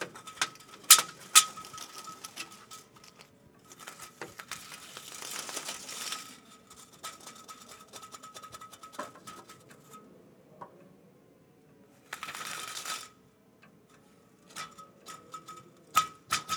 Is the metal scraping together?
yes